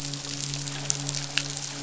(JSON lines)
{"label": "biophony, midshipman", "recorder": "SoundTrap 500"}